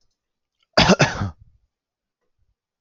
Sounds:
Throat clearing